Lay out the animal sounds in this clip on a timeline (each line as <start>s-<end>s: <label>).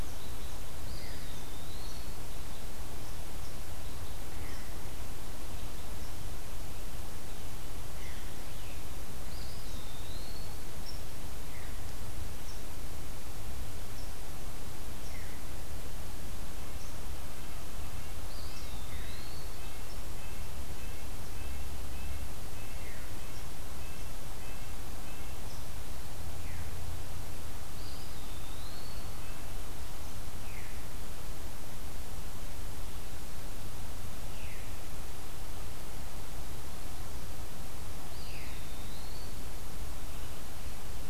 0.7s-2.6s: Eastern Wood-Pewee (Contopus virens)
0.9s-1.2s: Veery (Catharus fuscescens)
7.9s-9.0s: Veery (Catharus fuscescens)
9.0s-10.8s: Eastern Wood-Pewee (Contopus virens)
11.4s-11.8s: Veery (Catharus fuscescens)
15.1s-15.5s: Veery (Catharus fuscescens)
18.1s-19.7s: Eastern Wood-Pewee (Contopus virens)
18.8s-25.8s: Red-breasted Nuthatch (Sitta canadensis)
18.8s-19.1s: Veery (Catharus fuscescens)
22.7s-23.2s: Veery (Catharus fuscescens)
26.3s-26.7s: Veery (Catharus fuscescens)
27.5s-29.5s: Eastern Wood-Pewee (Contopus virens)
30.4s-30.8s: Veery (Catharus fuscescens)
34.2s-34.6s: Veery (Catharus fuscescens)
37.9s-39.8s: Eastern Wood-Pewee (Contopus virens)
38.1s-38.7s: Veery (Catharus fuscescens)